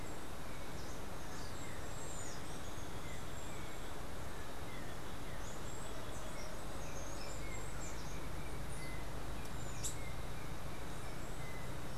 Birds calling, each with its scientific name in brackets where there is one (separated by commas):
Steely-vented Hummingbird (Saucerottia saucerottei), unidentified bird, Yellow-backed Oriole (Icterus chrysater)